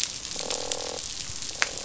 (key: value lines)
label: biophony, croak
recorder: SoundTrap 500